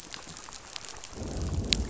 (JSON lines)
{"label": "biophony, growl", "recorder": "SoundTrap 500"}